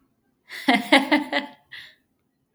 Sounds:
Laughter